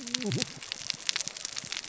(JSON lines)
{"label": "biophony, cascading saw", "recorder": "SoundTrap 600 or HydroMoth"}